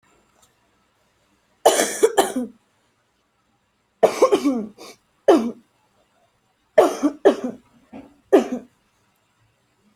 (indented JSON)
{
  "expert_labels": [
    {
      "quality": "good",
      "cough_type": "wet",
      "dyspnea": false,
      "wheezing": false,
      "stridor": false,
      "choking": false,
      "congestion": true,
      "nothing": false,
      "diagnosis": "COVID-19",
      "severity": "mild"
    }
  ]
}